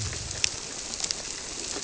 {"label": "biophony", "recorder": "SoundTrap 300"}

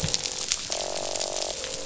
{"label": "biophony, croak", "recorder": "SoundTrap 500"}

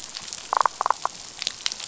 {"label": "biophony, damselfish", "recorder": "SoundTrap 500"}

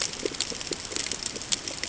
{"label": "ambient", "recorder": "HydroMoth"}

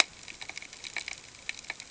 {"label": "ambient", "recorder": "HydroMoth"}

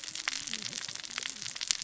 {"label": "biophony, cascading saw", "recorder": "SoundTrap 600 or HydroMoth"}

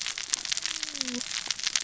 {"label": "biophony, cascading saw", "recorder": "SoundTrap 600 or HydroMoth"}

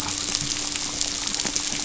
{"label": "anthrophony, boat engine", "recorder": "SoundTrap 500"}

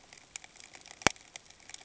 {"label": "ambient", "recorder": "HydroMoth"}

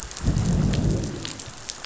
{"label": "biophony, growl", "recorder": "SoundTrap 500"}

